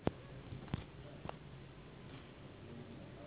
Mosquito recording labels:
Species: Anopheles gambiae s.s.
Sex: female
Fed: unfed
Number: one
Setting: insect culture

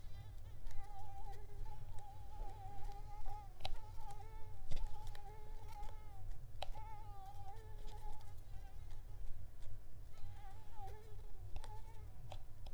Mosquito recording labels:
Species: Mansonia africanus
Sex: female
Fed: unfed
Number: one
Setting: cup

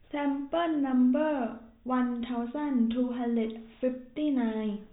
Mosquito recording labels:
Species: no mosquito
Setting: cup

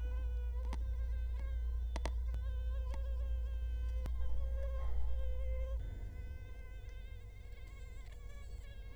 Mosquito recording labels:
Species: Culex quinquefasciatus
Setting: cup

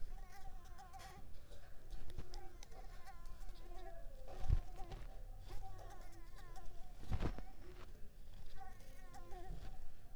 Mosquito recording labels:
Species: Mansonia uniformis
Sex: female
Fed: unfed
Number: one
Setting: cup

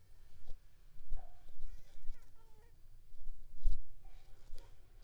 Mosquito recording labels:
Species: Anopheles squamosus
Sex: female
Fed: unfed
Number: one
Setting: cup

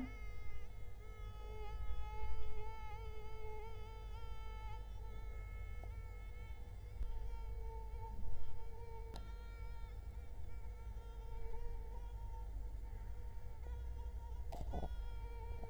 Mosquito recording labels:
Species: Culex quinquefasciatus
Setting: cup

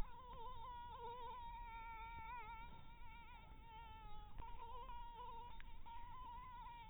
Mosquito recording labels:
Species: Anopheles maculatus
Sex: female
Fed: blood-fed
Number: one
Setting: cup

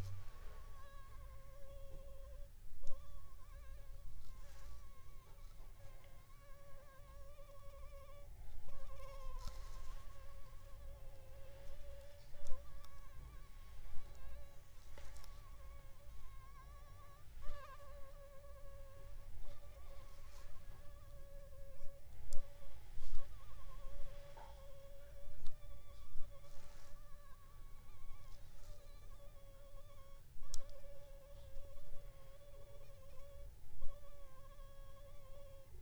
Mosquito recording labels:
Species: Anopheles funestus s.s.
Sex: female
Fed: unfed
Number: one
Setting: cup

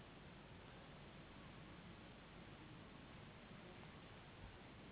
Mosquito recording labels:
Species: Anopheles gambiae s.s.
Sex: female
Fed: unfed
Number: one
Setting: insect culture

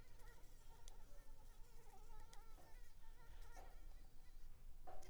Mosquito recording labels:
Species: Anopheles arabiensis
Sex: male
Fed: unfed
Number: one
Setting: cup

